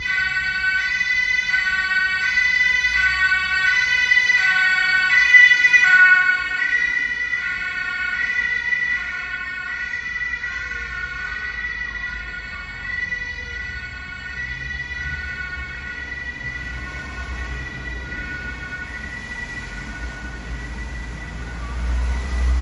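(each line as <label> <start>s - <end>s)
An ambulance siren approaches with a high-pitched, increasing volume. 0.0s - 6.5s
An ambulance drives away, producing a high-pitched, faint sound amid background traffic noise. 6.5s - 22.6s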